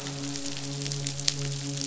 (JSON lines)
{"label": "biophony, midshipman", "recorder": "SoundTrap 500"}